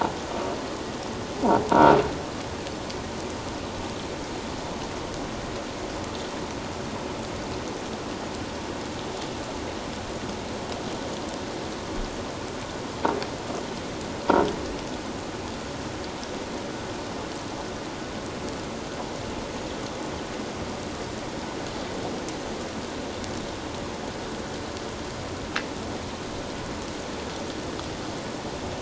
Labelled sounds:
1.7	1.9	croaking sound likely from a nearby submerged object, 0.91 to 1.0 kHz

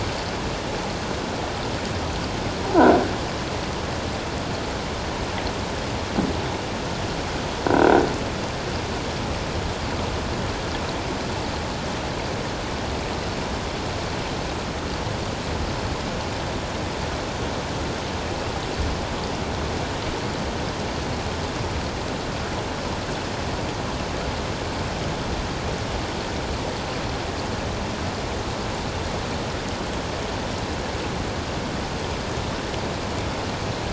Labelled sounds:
7.7	8.0	croaking sound likely from a nearby submerged object, 1.4 to 1.6 kHz

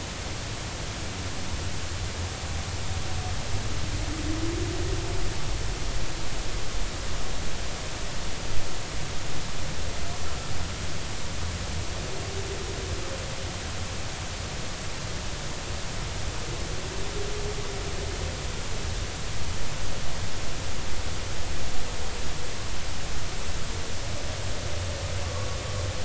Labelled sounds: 25.2	25.5	humpback whale, 1.0 to 1.2 kHz

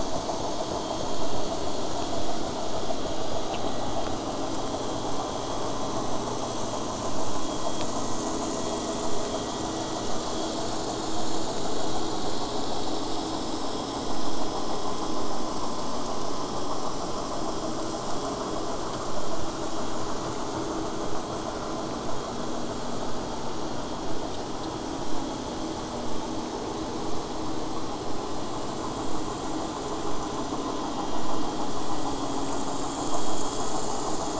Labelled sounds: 26.0	31.1	vessel noise, 0 to 8.0 kHz

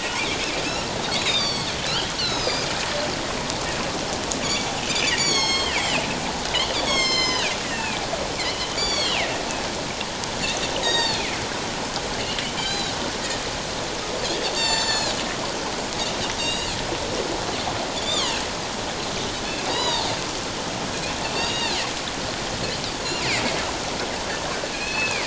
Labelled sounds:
0.1	2.7	Pacific white-sided dolphin, 1.9 to 8.0 kHz
4.8	6.1	Pacific white-sided dolphin, 1.8 to 8.0 kHz
6.7	8.1	Pacific white-sided dolphin, 1.0 to 7.8 kHz
8.7	9.3	Pacific white-sided dolphin, 1.8 to 8.0 kHz
10.8	11.4	Pacific white-sided dolphin, 1.7 to 7.7 kHz
12.5	12.9	Pacific white-sided dolphin, 2.2 to 7.3 kHz
14.4	15.1	Pacific white-sided dolphin, 1.8 to 8.0 kHz
16.4	16.7	Pacific white-sided dolphin, 2.7 to 6.9 kHz
18.0	18.4	Pacific white-sided dolphin, 0.88 to 4.9 kHz
19.7	20.1	Pacific white-sided dolphin, 0.84 to 7.0 kHz
21.2	21.8	Pacific white-sided dolphin, 2.5 to 6.7 kHz
24.7	25.2	Pacific white-sided dolphin, 1.6 to 4.4 kHz

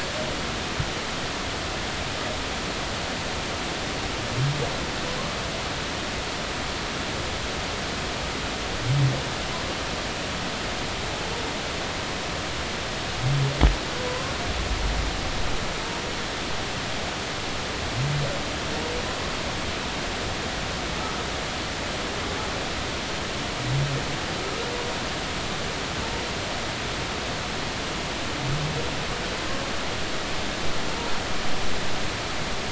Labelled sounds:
14.1	14.3	humpback whale, 0.96 to 1.1 kHz

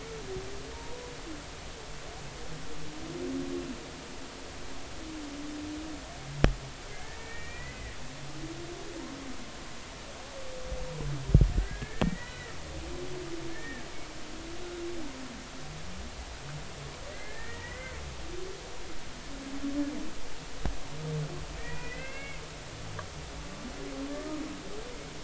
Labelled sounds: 0.7	1.1	humpback whale, 0.86 to 1.0 kHz
6.9	8.0	humpback whale, 1.6 to 2.6 kHz
11.5	12.5	humpback whale, 1.4 to 2.3 kHz
13.5	13.9	humpback whale, 1.6 to 2.4 kHz
17.1	17.9	humpback whale, 1.5 to 2.2 kHz
21.6	22.4	humpback whale, 1.5 to 2.8 kHz

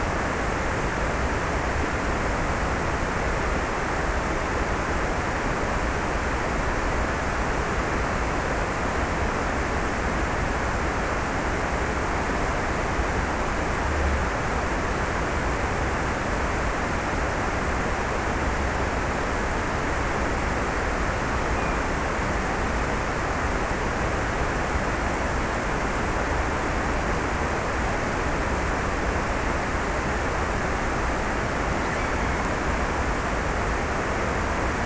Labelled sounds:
21.4	22.6	killer whale, offshore, 2.0 to 2.7 kHz

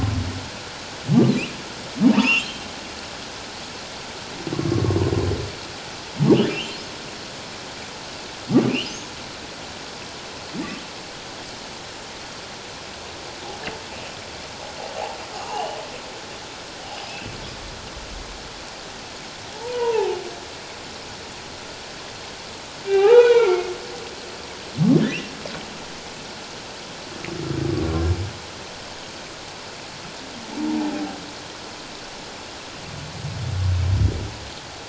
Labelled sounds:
2.0	2.6	humpback whale, 0.88 to 3.3 kHz
6.5	6.8	humpback whale, 2.6 to 3.2 kHz
8.7	9.0	humpback whale, 2.3 to 3.2 kHz
15.5	15.8	humpback whale, 2.7 to 3.1 kHz
19.5	20.2	humpback whale, 0.78 to 1.0 kHz
22.9	23.7	humpback whale, 0.78 to 4.0 kHz
25.0	25.3	humpback whale, 2.4 to 3.2 kHz
30.7	31.2	humpback whale, 0.78 to 0.97 kHz

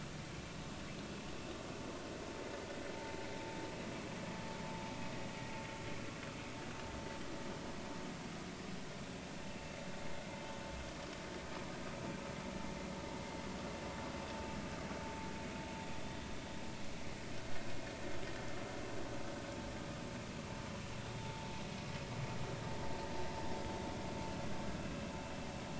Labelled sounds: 21.2	21.5	vessel noise, 0.83 to 0.93 kHz

